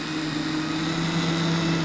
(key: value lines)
label: anthrophony, boat engine
recorder: SoundTrap 500